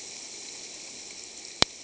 {"label": "ambient", "recorder": "HydroMoth"}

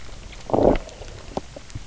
{"label": "biophony, low growl", "recorder": "SoundTrap 300"}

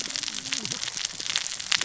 {"label": "biophony, cascading saw", "recorder": "SoundTrap 600 or HydroMoth"}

